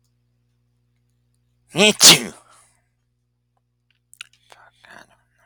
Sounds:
Sneeze